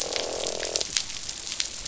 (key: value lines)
label: biophony, croak
recorder: SoundTrap 500